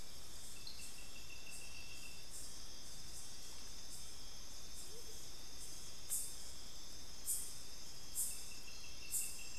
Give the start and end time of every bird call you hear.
4.8s-5.2s: Amazonian Motmot (Momotus momota)

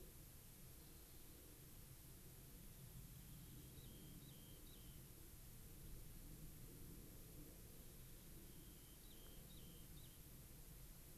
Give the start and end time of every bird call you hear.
0.7s-1.3s: Rock Wren (Salpinctes obsoletus)
2.6s-5.0s: Rock Wren (Salpinctes obsoletus)
8.4s-10.2s: Rock Wren (Salpinctes obsoletus)

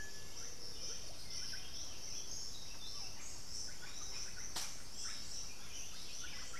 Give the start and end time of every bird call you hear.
0.0s-2.0s: Black-billed Thrush (Turdus ignobilis)
0.0s-2.9s: Piratic Flycatcher (Legatus leucophaius)
0.0s-6.6s: Buff-throated Saltator (Saltator maximus)
0.0s-6.6s: Russet-backed Oropendola (Psarocolius angustifrons)

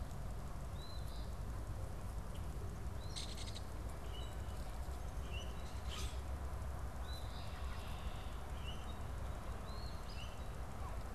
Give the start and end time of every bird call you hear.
0.7s-1.3s: Eastern Phoebe (Sayornis phoebe)
2.9s-3.6s: Eastern Phoebe (Sayornis phoebe)
3.0s-3.7s: Belted Kingfisher (Megaceryle alcyon)
4.1s-6.3s: Common Grackle (Quiscalus quiscula)
6.9s-7.6s: Eastern Phoebe (Sayornis phoebe)
7.0s-8.4s: Red-winged Blackbird (Agelaius phoeniceus)
8.2s-9.2s: Common Grackle (Quiscalus quiscula)
9.4s-10.3s: Eastern Phoebe (Sayornis phoebe)

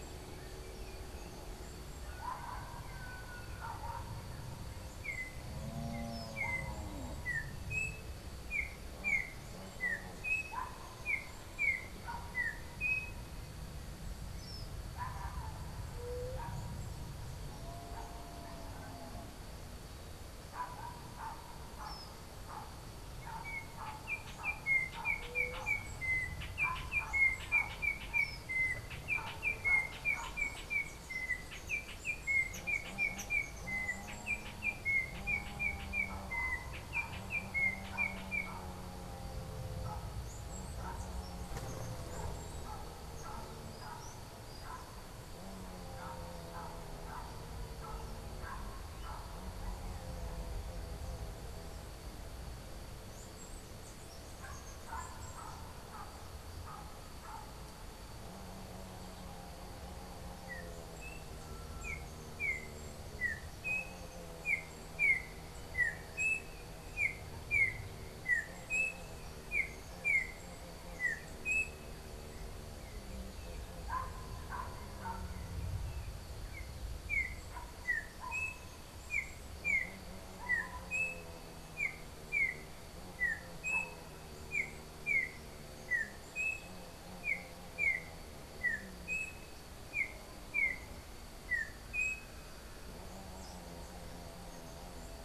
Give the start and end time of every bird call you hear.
4.9s-13.3s: Yellow-backed Oriole (Icterus chrysater)
15.9s-16.5s: White-tipped Dove (Leptotila verreauxi)
23.2s-38.7s: Yellow-backed Oriole (Icterus chrysater)
53.0s-55.7s: Chestnut-capped Brushfinch (Arremon brunneinucha)
60.3s-71.9s: Yellow-backed Oriole (Icterus chrysater)
76.5s-92.4s: Yellow-backed Oriole (Icterus chrysater)

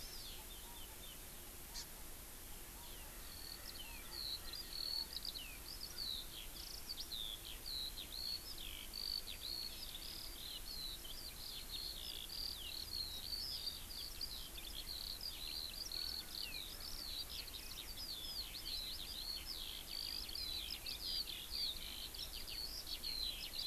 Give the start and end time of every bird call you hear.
0.0s-0.3s: Hawaii Amakihi (Chlorodrepanis virens)
0.2s-1.2s: Chinese Hwamei (Garrulax canorus)
1.7s-1.8s: Hawaii Amakihi (Chlorodrepanis virens)
2.6s-23.7s: Eurasian Skylark (Alauda arvensis)
3.7s-6.2s: Erckel's Francolin (Pternistis erckelii)
15.9s-18.2s: Erckel's Francolin (Pternistis erckelii)

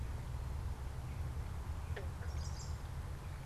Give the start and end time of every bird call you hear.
2.1s-3.0s: Chestnut-sided Warbler (Setophaga pensylvanica)

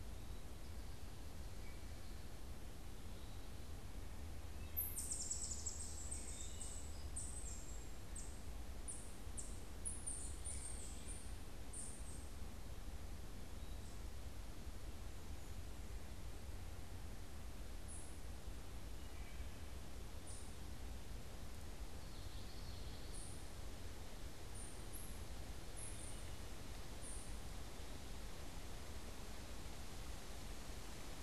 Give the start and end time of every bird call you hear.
1.5s-2.0s: Wood Thrush (Hylocichla mustelina)
4.4s-7.2s: Wood Thrush (Hylocichla mustelina)
18.9s-19.7s: Wood Thrush (Hylocichla mustelina)
21.9s-23.5s: Common Yellowthroat (Geothlypis trichas)
25.6s-26.6s: Wood Thrush (Hylocichla mustelina)

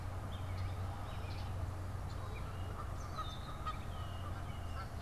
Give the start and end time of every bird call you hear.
0.0s-5.0s: Gray Catbird (Dumetella carolinensis)
2.4s-5.0s: Canada Goose (Branta canadensis)
2.8s-4.9s: Red-winged Blackbird (Agelaius phoeniceus)

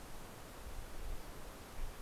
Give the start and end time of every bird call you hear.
1.1s-2.0s: Steller's Jay (Cyanocitta stelleri)

